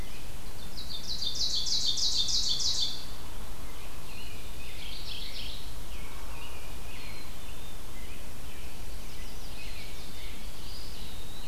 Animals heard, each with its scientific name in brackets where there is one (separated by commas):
American Robin (Turdus migratorius), Black-capped Chickadee (Poecile atricapillus), Chestnut-sided Warbler (Setophaga pensylvanica), Mourning Warbler (Geothlypis philadelphia), Ovenbird (Seiurus aurocapilla), Eastern Wood-Pewee (Contopus virens)